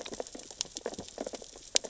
{"label": "biophony, sea urchins (Echinidae)", "recorder": "SoundTrap 600 or HydroMoth"}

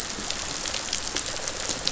{"label": "biophony", "recorder": "SoundTrap 500"}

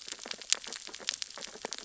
{"label": "biophony, sea urchins (Echinidae)", "recorder": "SoundTrap 600 or HydroMoth"}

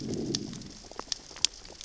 {"label": "biophony, growl", "recorder": "SoundTrap 600 or HydroMoth"}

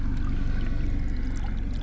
{"label": "anthrophony, boat engine", "recorder": "SoundTrap 300"}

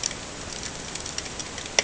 {"label": "ambient", "recorder": "HydroMoth"}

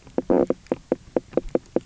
{"label": "biophony, knock croak", "recorder": "SoundTrap 300"}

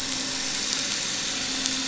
{"label": "anthrophony, boat engine", "recorder": "SoundTrap 500"}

